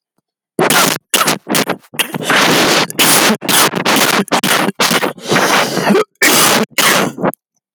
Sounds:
Cough